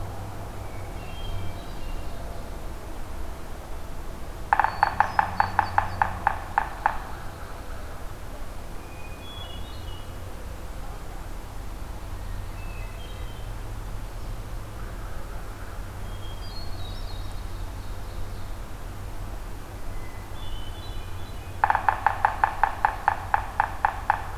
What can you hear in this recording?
Hermit Thrush, Yellow-bellied Sapsucker, Pine Warbler, Ovenbird